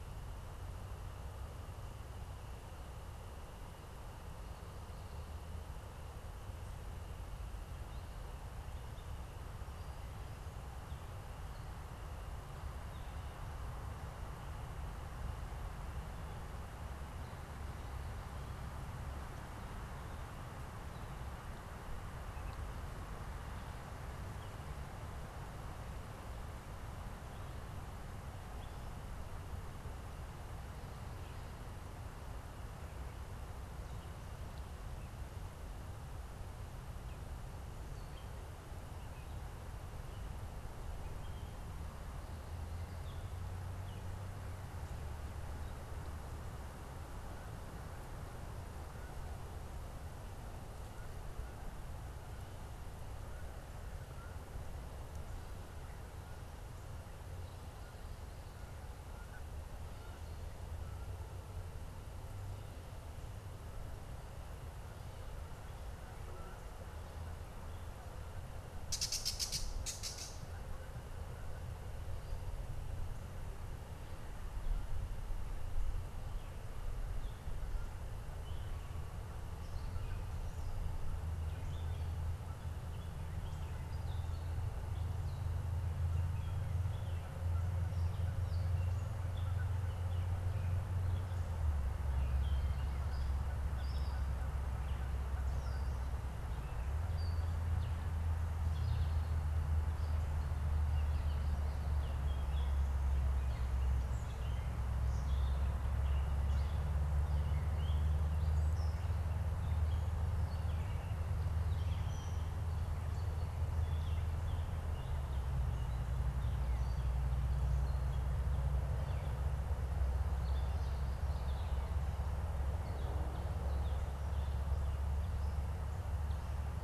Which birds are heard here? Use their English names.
Gray Catbird